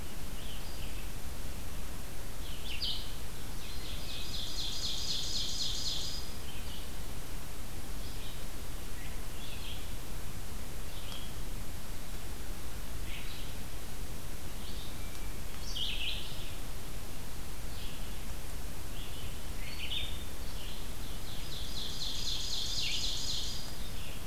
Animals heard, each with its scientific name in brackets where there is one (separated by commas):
Red-eyed Vireo (Vireo olivaceus), Ovenbird (Seiurus aurocapilla)